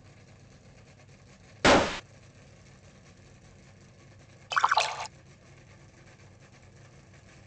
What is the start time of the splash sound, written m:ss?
0:04